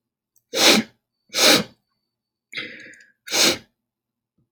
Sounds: Sniff